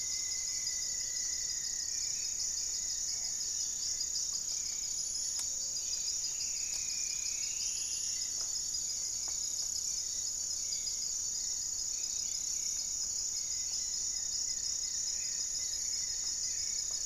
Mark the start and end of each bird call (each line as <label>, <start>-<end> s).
Rufous-fronted Antthrush (Formicarius rufifrons), 0.0-2.3 s
Black-faced Antthrush (Formicarius analis), 0.0-5.0 s
Gray-fronted Dove (Leptotila rufaxilla), 0.0-17.1 s
Hauxwell's Thrush (Turdus hauxwelli), 0.0-17.1 s
Goeldi's Antbird (Akletos goeldii), 2.0-4.2 s
Striped Woodcreeper (Xiphorhynchus obsoletus), 5.8-8.4 s
Goeldi's Antbird (Akletos goeldii), 13.2-17.1 s
Black-faced Antthrush (Formicarius analis), 15.1-15.5 s